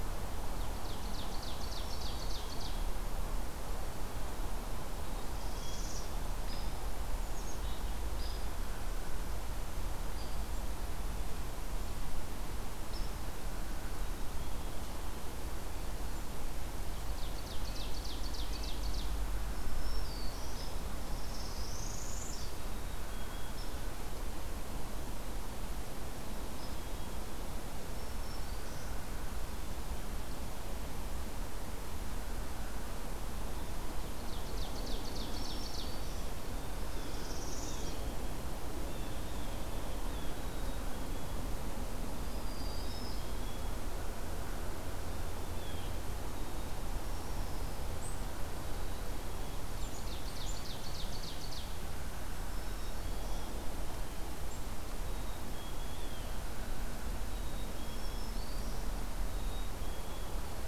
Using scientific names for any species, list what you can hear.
Seiurus aurocapilla, Setophaga virens, Poecile atricapillus, Setophaga americana, Dryobates villosus, Sitta canadensis, Cyanocitta cristata